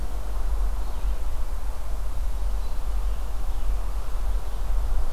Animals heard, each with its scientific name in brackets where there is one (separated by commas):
Blue-headed Vireo (Vireo solitarius)